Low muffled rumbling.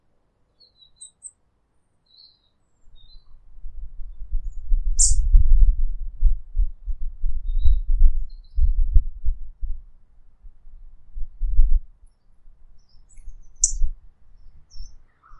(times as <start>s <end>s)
3.6s 9.9s, 11.1s 11.9s, 13.1s 15.1s